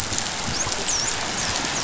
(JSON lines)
{"label": "biophony, dolphin", "recorder": "SoundTrap 500"}